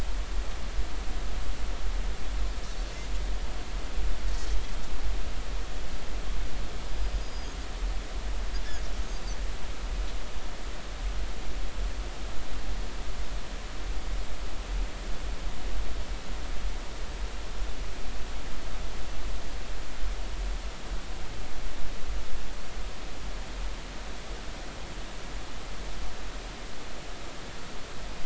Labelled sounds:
6.8	7.5	Pacific white-sided dolphin, 4.7 to 5.1 kHz

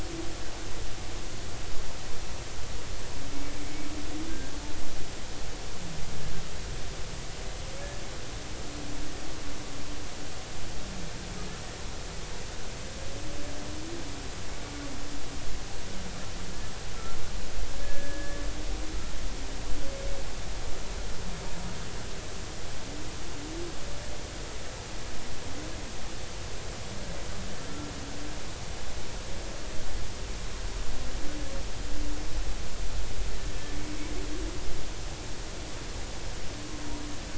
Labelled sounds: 17.8	18.4	humpback whale, 1.6 to 1.9 kHz

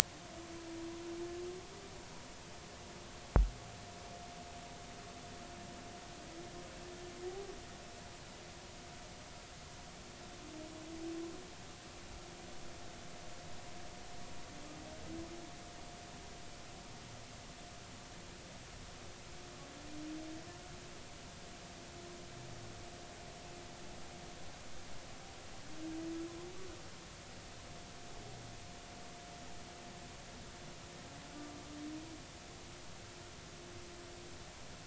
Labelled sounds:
31.3	31.6	humpback whale, 1.15 to 1.22 kHz

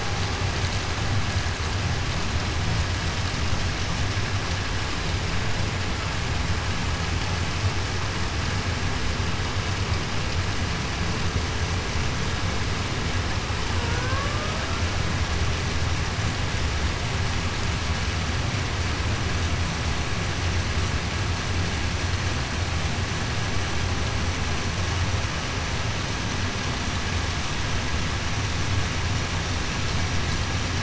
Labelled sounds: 13.9	14.3	killer whale, Bigg's (transient), 1.4 to 1.7 kHz

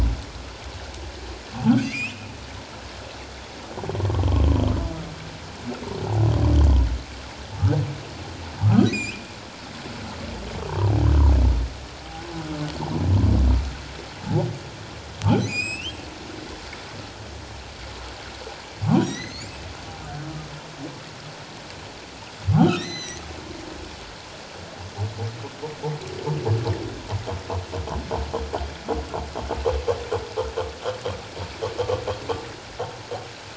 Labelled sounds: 1.8	2.3	humpback whale, 2.0 to 5.4 kHz
8.9	9.2	humpback whale, 2.1 to 7.5 kHz
15.5	16.0	humpback whale, 2.2 to 8.0 kHz
19.0	19.5	humpback whale, 1.8 to 7.6 kHz
22.6	23.2	humpback whale, 1.8 to 8.0 kHz

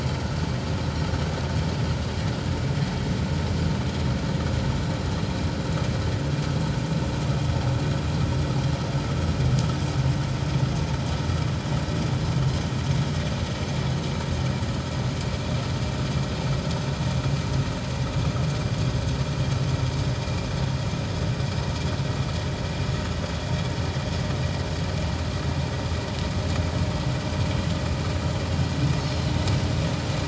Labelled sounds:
29.0	29.3	Pacific white-sided dolphin, 4.0 to 4.4 kHz

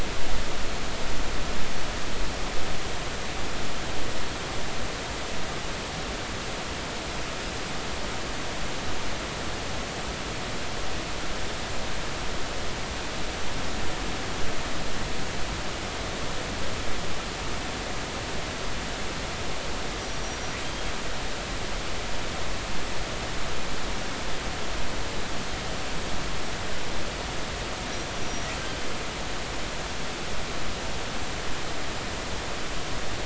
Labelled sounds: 20.0	20.4	killer whale, northern resident, 5.7 to 5.9 kHz
28.2	28.5	killer whale, northern resident, 5.6 to 5.8 kHz

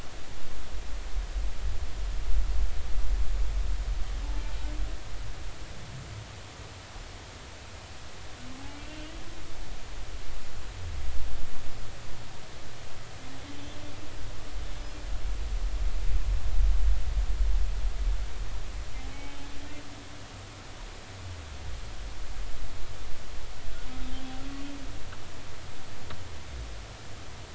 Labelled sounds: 8.8	9.1	humpback whale, 2.6 to 2.8 kHz
19.1	19.5	humpback whale, 2.2 to 3.1 kHz

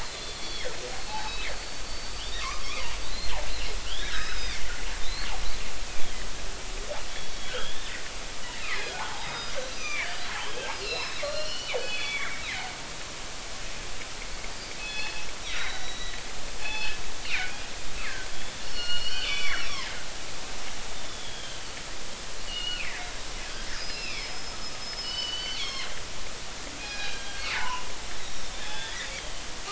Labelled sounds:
0.0	3.4	killer whale, northern resident, G clan, 0.80 to 5.7 kHz
3.8	4.6	killer whale, northern resident, G clan, 1.2 to 5.3 kHz
5.0	6.3	killer whale, northern resident, G clan, 3.0 to 4.5 kHz
7.1	8.0	killer whale, northern resident, G clan, 1.2 to 4.5 kHz
8.6	10.1	killer whale, northern resident, G clan, 0.80 to 6.1 kHz
10.8	12.8	killer whale, northern resident, G clan, 1.3 to 5.9 kHz
14.8	16.1	killer whale, northern resident, G clan, 1.7 to 4.4 kHz
16.6	17.0	killer whale, northern resident, G clan, 0.80 to 5.2 kHz
17.3	17.6	killer whale, northern resident, G clan, 2.0 to 2.6 kHz
18.3	19.9	killer whale, northern resident, G clan, 1.3 to 5.7 kHz
20.3	21.6	killer whale, northern resident, G clan, 1.1 to 5.3 kHz
22.5	23.1	killer whale, northern resident, G clan, 1.6 to 4.4 kHz
23.7	26.0	killer whale, northern resident, G clan, 0.99 to 5.3 kHz
26.8	27.8	killer whale, northern resident, G clan, 0.80 to 5.0 kHz
28.2	29.4	killer whale, northern resident, G clan, 1.5 to 5.8 kHz

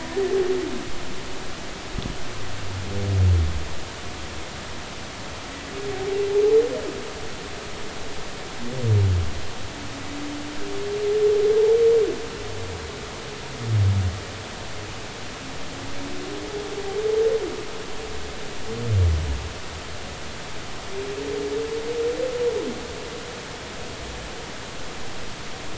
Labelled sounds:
0.0	0.3	humpback whale, 1.7 to 2.0 kHz

